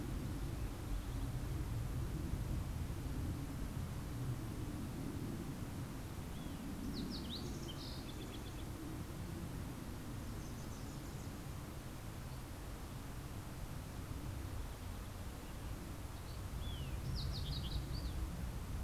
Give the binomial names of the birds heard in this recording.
Passerella iliaca, Cardellina pusilla